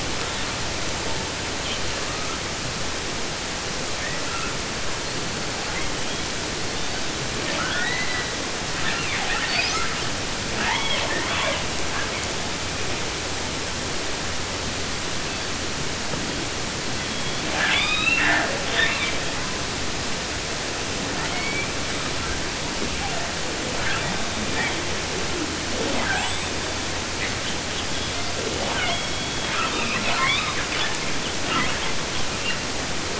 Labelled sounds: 0.2	2.5	killer whale, 0.53 to 4.9 kHz
4.0	4.6	killer whale, 0.82 to 3.5 kHz
4.9	10.2	killer whale, 0.50 to 8.0 kHz
10.5	11.7	killer whale, southern resident, 0.16 to 6.2 kHz
11.8	12.3	killer whale, 0.53 to 3.4 kHz
15.0	15.5	killer whale, 0.98 to 5.0 kHz
16.9	19.3	killer whale, southern resident, 0.14 to 8.0 kHz
21.1	22.5	killer whale, 0.50 to 5.0 kHz
23.0	23.6	killer whale, 0.14 to 2.5 kHz
23.6	24.9	killer whale, southern resident, 0.08 to 8.0 kHz
25.7	27.0	killer whale, 0.14 to 8.0 kHz
27.2	28.3	killer whale, southern resident, 0.21 to 5.6 kHz
28.4	32.7	killer whale, 0.04 to 8.0 kHz

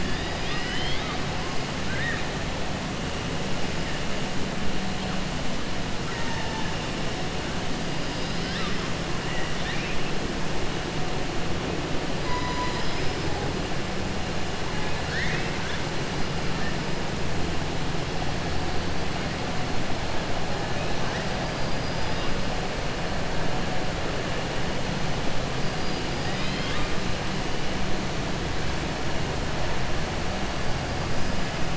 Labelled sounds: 0.0	1.2	killer whale, 1.2 to 5.2 kHz
1.8	2.2	killer whale, 1.5 to 3.8 kHz
6.0	6.7	killer whale, 0.85 to 2.0 kHz
9.3	10.0	killer whale, 1.8 to 4.0 kHz
12.2	13.2	killer whale, 2.4 to 6.9 kHz
14.7	15.8	killer whale, 1.5 to 6.5 kHz
25.6	26.9	killer whale, 1.2 to 5.2 kHz

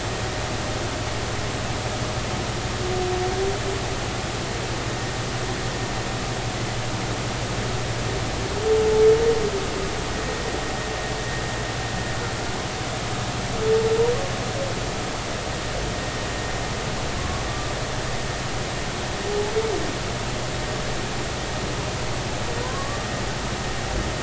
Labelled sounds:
17.2	17.4	humpback whale, 1.0 to 1.2 kHz
22.6	23.0	humpback whale, 0.90 to 1.2 kHz

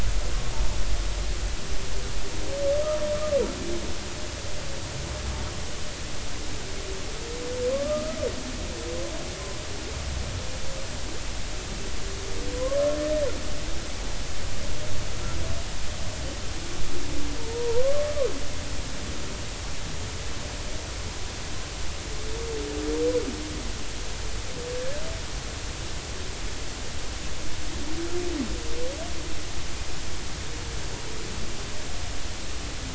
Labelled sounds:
7.7	8.2	humpback whale, 1.0 to 1.3 kHz
12.5	12.8	humpback whale, 0.96 to 1.2 kHz
17.4	18.1	humpback whale, 0.86 to 1.2 kHz

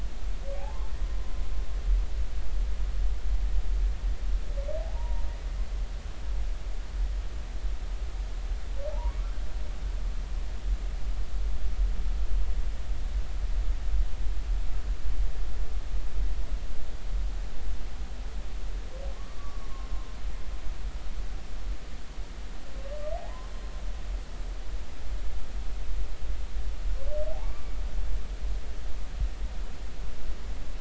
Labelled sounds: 0.6	0.9	humpback whale, 0.80 to 0.93 kHz
4.8	5.3	humpback whale, 0.80 to 1.1 kHz
8.9	9.2	humpback whale, 0.80 to 1.2 kHz
19.1	19.7	humpback whale, 1.0 to 1.2 kHz
23.1	23.5	humpback whale, 0.80 to 1.1 kHz
27.4	27.7	humpback whale, 1.1 to 1.2 kHz

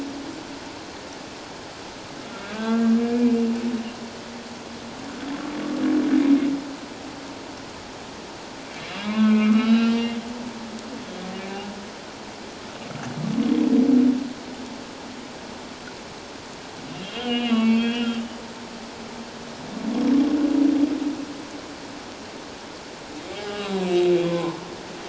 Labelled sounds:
2.3	3.4	humpback whale, 1.3 to 2.5 kHz
9.0	10.1	humpback whale, 0.97 to 3.9 kHz
16.9	18.2	humpback whale, 1.6 to 4.5 kHz
23.4	24.6	humpback whale, 0.84 to 5.1 kHz

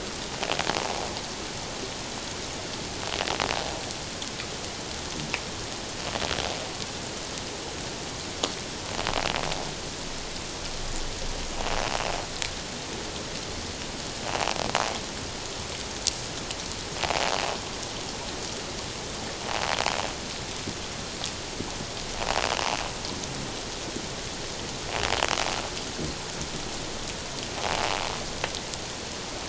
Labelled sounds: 27.6	27.8	invertebrate grinding on or near the hydrophone, 0.78 to 0.91 kHz

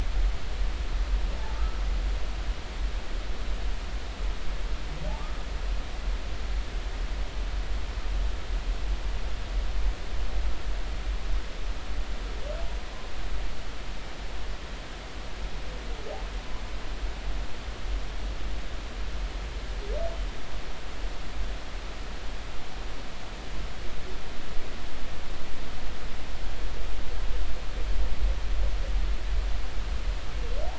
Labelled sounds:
1.5	1.8	humpback whale, 1.2 to 1.4 kHz

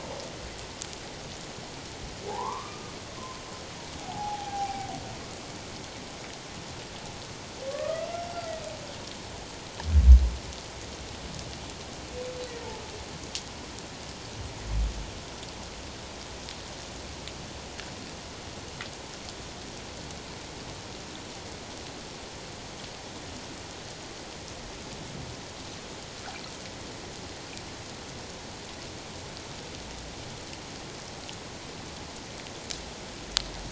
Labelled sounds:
2.3	2.9	humpback whale, 0.78 to 1.2 kHz
4.0	4.9	humpback whale, 0.78 to 0.91 kHz
7.7	8.1	humpback whale, 1.1 to 1.3 kHz

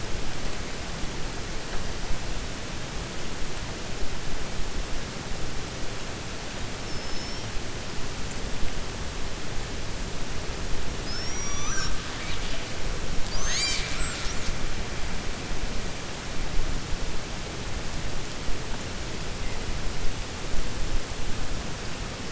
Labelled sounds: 6.8	7.5	killer whale, 5.2 to 5.7 kHz

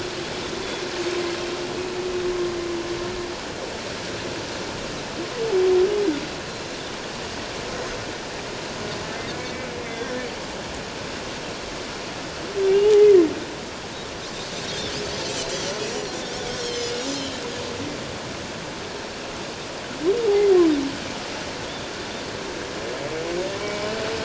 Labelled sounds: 9.3	10.2	humpback whale, 1.5 to 2.3 kHz
9.9	10.1	Pacific white-sided dolphin, 3.4 to 3.6 kHz
12.7	12.9	humpback whale, 2.7 to 3.0 kHz
15.5	15.8	Pacific white-sided dolphin, 5.8 to 6.1 kHz
16.5	17.4	Pacific white-sided dolphin, 2.9 to 6.5 kHz
23.6	23.9	humpback whale, 2.2 to 2.3 kHz

